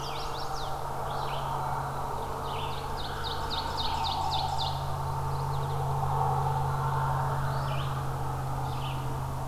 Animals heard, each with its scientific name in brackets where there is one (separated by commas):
Ovenbird (Seiurus aurocapilla), Red-eyed Vireo (Vireo olivaceus), Mourning Warbler (Geothlypis philadelphia), Chestnut-sided Warbler (Setophaga pensylvanica)